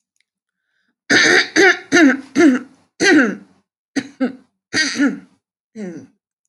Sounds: Throat clearing